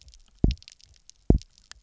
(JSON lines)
{"label": "biophony, double pulse", "recorder": "SoundTrap 300"}